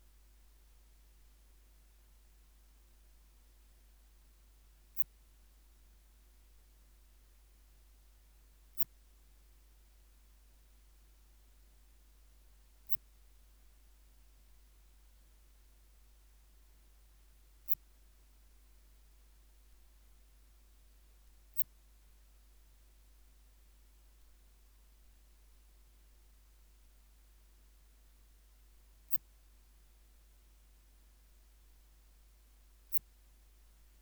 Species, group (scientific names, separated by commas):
Phaneroptera falcata, Orthoptera